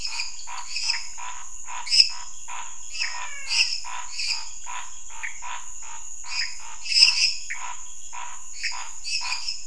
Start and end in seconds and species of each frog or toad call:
0.0	9.6	Dendropsophus minutus
0.0	9.6	Scinax fuscovarius
2.8	3.9	Physalaemus albonotatus
5.1	5.5	Pithecopus azureus
7.5	7.7	Pithecopus azureus
Brazil, ~10pm

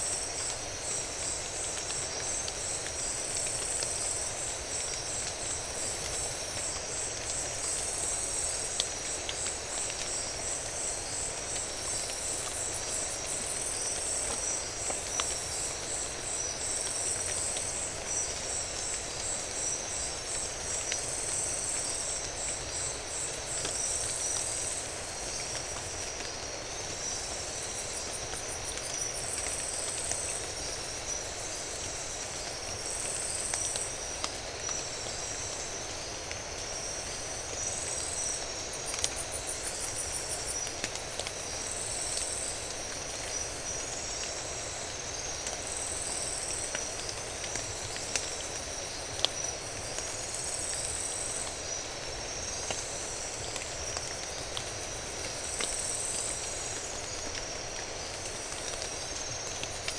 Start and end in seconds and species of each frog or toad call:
none
Brazil, 4am

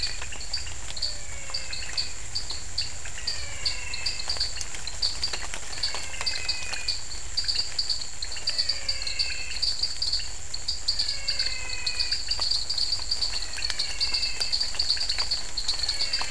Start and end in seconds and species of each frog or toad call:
0.0	14.8	Physalaemus albonotatus
0.0	16.3	Dendropsophus nanus
0.0	16.3	Leptodactylus podicipinus
Brazil, 7pm

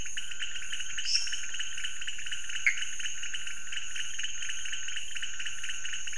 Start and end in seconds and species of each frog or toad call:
0.0	6.1	Leptodactylus podicipinus
1.0	1.4	Dendropsophus minutus
2.6	2.8	Pithecopus azureus
Brazil, 3am

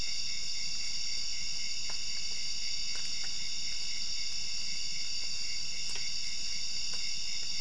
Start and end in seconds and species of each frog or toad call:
none
Brazil, midnight

